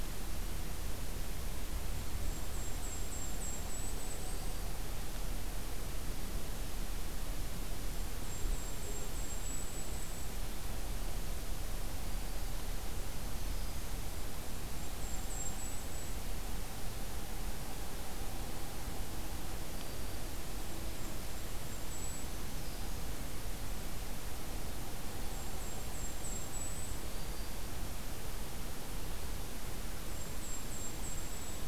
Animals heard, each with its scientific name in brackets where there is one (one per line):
Black-throated Green Warbler (Setophaga virens)
Golden-crowned Kinglet (Regulus satrapa)